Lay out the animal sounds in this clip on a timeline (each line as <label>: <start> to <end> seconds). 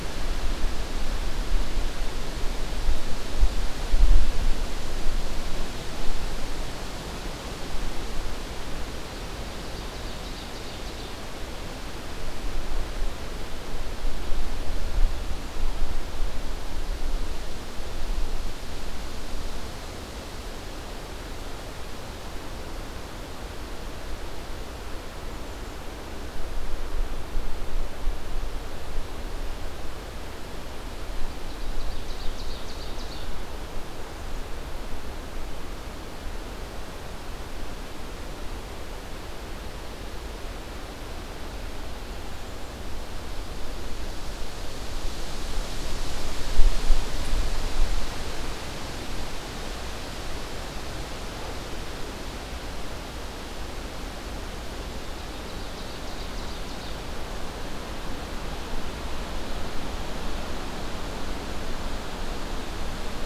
Ovenbird (Seiurus aurocapilla): 9.6 to 11.3 seconds
Ovenbird (Seiurus aurocapilla): 31.4 to 33.4 seconds
Ovenbird (Seiurus aurocapilla): 55.1 to 57.0 seconds